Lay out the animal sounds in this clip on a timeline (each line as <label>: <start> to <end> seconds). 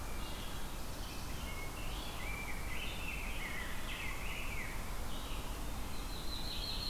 Wood Thrush (Hylocichla mustelina): 0.0 to 0.6 seconds
Red-eyed Vireo (Vireo olivaceus): 0.1 to 6.9 seconds
Black-throated Blue Warbler (Setophaga caerulescens): 0.3 to 1.7 seconds
Rose-breasted Grosbeak (Pheucticus ludovicianus): 1.6 to 5.4 seconds
Yellow-rumped Warbler (Setophaga coronata): 5.7 to 6.9 seconds